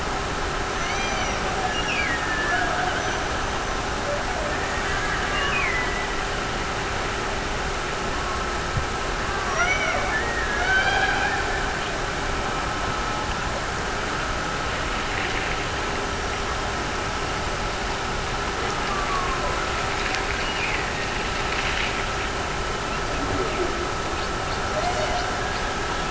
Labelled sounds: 1.6	2.9	killer whale, Bigg's (transient), Gulf of Alaska transient, 1.5 to 6.0 kHz
5.2	6.4	killer whale, Bigg's (transient), Gulf of Alaska transient, 1.8 to 3.0 kHz
9.4	11.9	killer whale, Bigg's (transient), Gulf of Alaska transient, 0.39 to 6.4 kHz
20.3	21.7	killer whale, Bigg's (transient), Gulf of Alaska transient, 1.6 to 2.9 kHz
24.7	26.0	killer whale, Bigg's (transient), Gulf of Alaska transient, 0.39 to 7.9 kHz

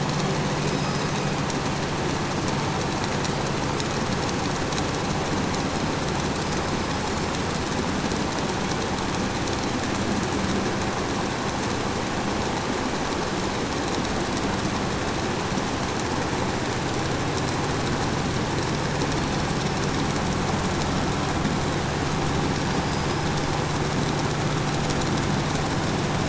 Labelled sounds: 0.5	1.6	killer whale, southern resident, call S17, 1.1 to 6.6 kHz
6.4	8.5	killer whale, 4.2 to 5.3 kHz
18.6	20.1	killer whale, 3.9 to 5.6 kHz
22.2	23.4	killer whale, 4.4 to 5.3 kHz

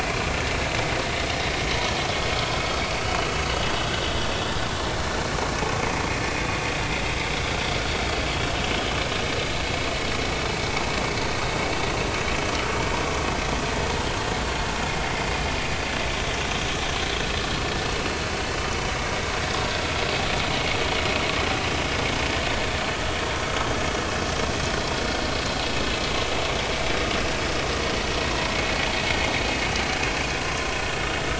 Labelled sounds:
30.4	30.7	vessel noise, 0.99 to 1.1 kHz

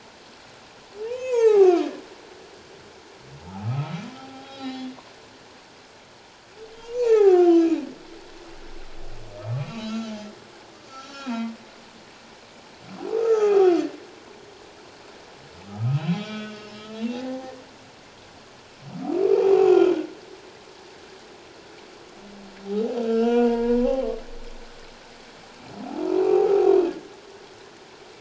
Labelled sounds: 1.0	1.8	humpback whale, 0.78 to 8.0 kHz
3.5	4.9	humpback whale, 0.78 to 4.2 kHz
6.8	7.9	humpback whale, 0.78 to 7.1 kHz
9.6	10.0	humpback whale, 2.4 to 4.0 kHz
10.9	11.5	humpback whale, 1.2 to 6.0 kHz
13.1	13.7	humpback whale, 0.78 to 6.1 kHz
15.7	17.6	humpback whale, 0.78 to 5.3 kHz
19.4	19.9	humpback whale, 0.78 to 7.0 kHz
23.0	24.2	humpback whale, 0.88 to 3.4 kHz
25.8	26.7	humpback whale, 0.78 to 1.3 kHz

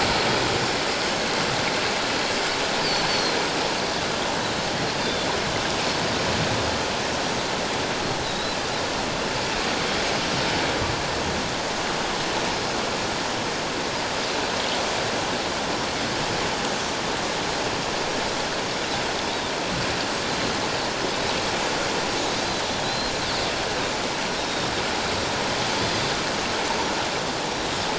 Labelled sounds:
3.1	3.4	Pacific white-sided dolphin, 4.1 to 4.6 kHz
5.0	5.4	Pacific white-sided dolphin, 3.3 to 3.7 kHz
8.2	8.6	Pacific white-sided dolphin, 3.7 to 4.1 kHz
22.8	23.1	Pacific white-sided dolphin, 3.8 to 4.2 kHz
24.3	24.7	Pacific white-sided dolphin, 3.6 to 3.8 kHz
25.8	26.1	Pacific white-sided dolphin, 4.6 to 5.0 kHz

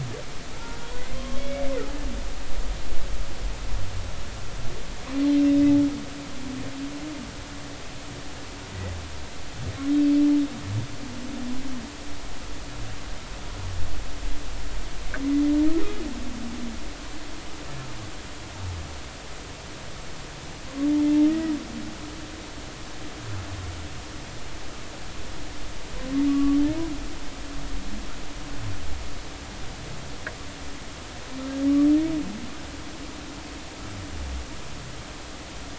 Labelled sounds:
1.1	1.6	humpback whale, 1.0 to 3.4 kHz
26.3	26.6	humpback whale, 1.1 to 1.2 kHz

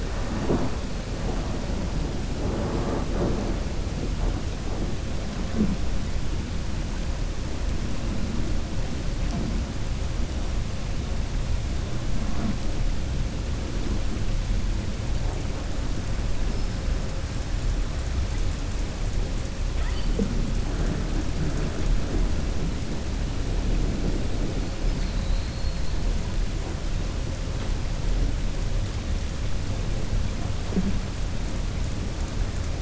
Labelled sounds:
24.8	25.9	killer whale, southern resident, 3.8 to 5.2 kHz

